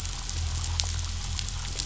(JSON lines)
{"label": "anthrophony, boat engine", "recorder": "SoundTrap 500"}